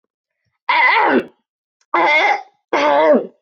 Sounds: Throat clearing